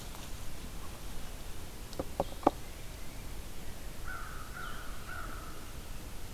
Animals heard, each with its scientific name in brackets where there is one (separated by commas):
American Crow (Corvus brachyrhynchos), Tufted Titmouse (Baeolophus bicolor)